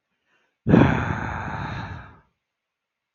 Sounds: Sigh